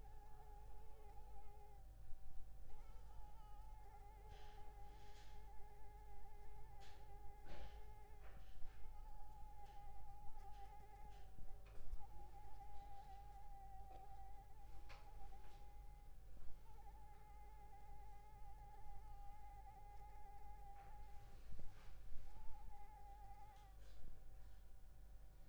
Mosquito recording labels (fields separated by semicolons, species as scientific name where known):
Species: Anopheles squamosus; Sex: female; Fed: unfed; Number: one; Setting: cup